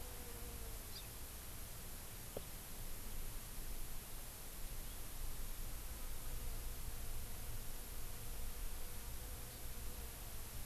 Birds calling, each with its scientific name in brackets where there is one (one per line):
Hawaii Amakihi (Chlorodrepanis virens)